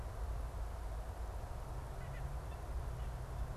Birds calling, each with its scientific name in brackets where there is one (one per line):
White-breasted Nuthatch (Sitta carolinensis)